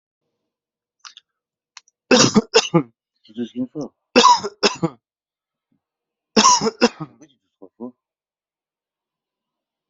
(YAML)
expert_labels:
- quality: good
  cough_type: dry
  dyspnea: false
  wheezing: false
  stridor: false
  choking: false
  congestion: false
  nothing: true
  diagnosis: upper respiratory tract infection
  severity: mild
age: 46
gender: male
respiratory_condition: false
fever_muscle_pain: false
status: symptomatic